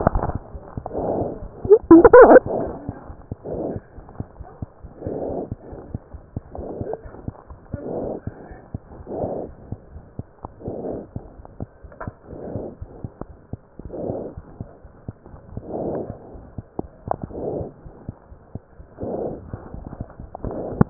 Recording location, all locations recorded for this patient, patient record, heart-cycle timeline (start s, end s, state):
aortic valve (AV)
aortic valve (AV)+pulmonary valve (PV)+mitral valve (MV)
#Age: Infant
#Sex: Female
#Height: 74.0 cm
#Weight: 9.015 kg
#Pregnancy status: False
#Murmur: Present
#Murmur locations: mitral valve (MV)+pulmonary valve (PV)
#Most audible location: mitral valve (MV)
#Systolic murmur timing: Early-systolic
#Systolic murmur shape: Plateau
#Systolic murmur grading: I/VI
#Systolic murmur pitch: Low
#Systolic murmur quality: Blowing
#Diastolic murmur timing: nan
#Diastolic murmur shape: nan
#Diastolic murmur grading: nan
#Diastolic murmur pitch: nan
#Diastolic murmur quality: nan
#Outcome: Normal
#Campaign: 2015 screening campaign
0.00	3.93	unannotated
3.93	4.04	S1
4.04	4.16	systole
4.16	4.25	S2
4.25	4.36	diastole
4.36	4.45	S1
4.45	4.59	systole
4.59	4.68	S2
4.68	4.81	diastole
4.81	4.91	S1
4.91	5.03	systole
5.03	5.10	S2
5.10	5.27	diastole
5.27	5.36	S1
5.36	5.48	systole
5.48	5.58	S2
5.58	5.70	diastole
5.70	5.76	S1
5.76	5.92	systole
5.92	5.99	S2
5.99	6.12	diastole
6.12	6.19	S1
6.19	6.34	systole
6.34	6.41	S2
6.41	6.55	diastole
6.55	6.66	S1
6.66	6.78	systole
6.78	6.86	S2
6.86	7.03	diastole
7.03	7.10	S1
7.10	7.24	systole
7.24	7.33	S2
7.33	7.48	diastole
7.48	7.55	S1
7.55	7.72	systole
7.72	7.78	S2
7.78	7.99	diastole
7.99	8.08	S1
8.08	8.25	systole
8.25	8.32	S2
8.32	8.48	diastole
8.48	8.57	S1
8.57	8.71	systole
8.71	8.80	S2
8.80	8.96	diastole
8.96	9.04	S1
9.04	9.19	systole
9.19	9.29	S2
9.29	9.47	diastole
9.47	9.54	S1
9.54	9.69	systole
9.69	9.77	S2
9.77	9.93	diastole
9.93	10.01	S1
10.01	10.16	systole
10.16	10.23	S2
10.23	20.90	unannotated